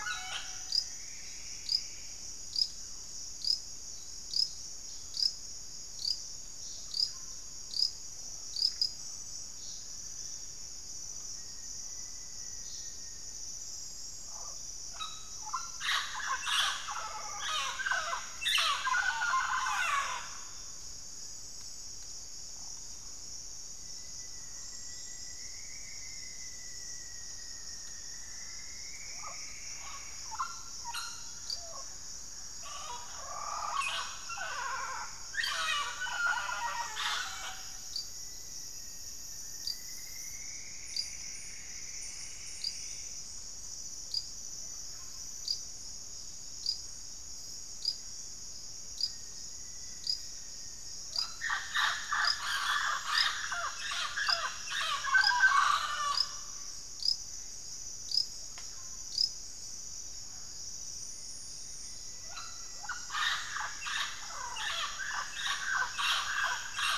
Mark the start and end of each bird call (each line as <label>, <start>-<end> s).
Mealy Parrot (Amazona farinosa), 0.0-67.0 s
Plumbeous Antbird (Myrmelastes hyperythrus), 0.3-2.3 s
unidentified bird, 9.2-10.9 s
Black-faced Antthrush (Formicarius analis), 11.0-13.5 s
Rufous-fronted Antthrush (Formicarius rufifrons), 23.7-29.0 s
Plumbeous Antbird (Myrmelastes hyperythrus), 27.5-30.2 s
Black-faced Antthrush (Formicarius analis), 37.3-39.8 s
Plumbeous Antbird (Myrmelastes hyperythrus), 39.0-43.6 s
Black-faced Antthrush (Formicarius analis), 48.8-51.3 s
unidentified bird, 58.4-59.1 s
Rufous-fronted Antthrush (Formicarius rufifrons), 61.7-67.0 s